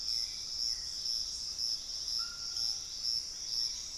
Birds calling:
Hauxwell's Thrush (Turdus hauxwelli), White-throated Toucan (Ramphastos tucanus), Piratic Flycatcher (Legatus leucophaius)

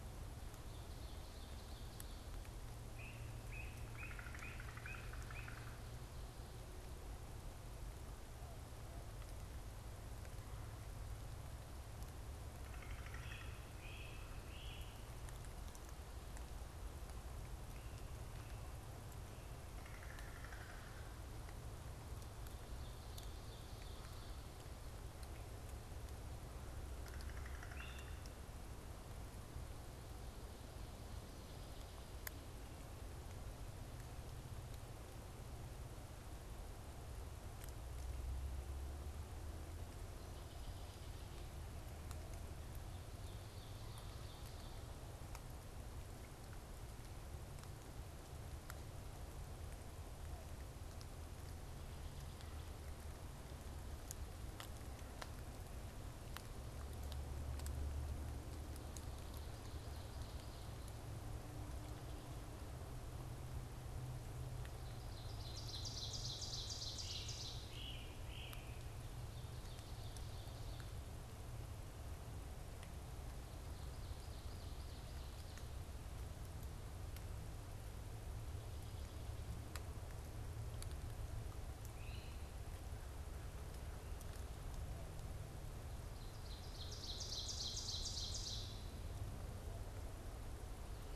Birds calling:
Great Crested Flycatcher (Myiarchus crinitus), American Crow (Corvus brachyrhynchos), unidentified bird, Ovenbird (Seiurus aurocapilla)

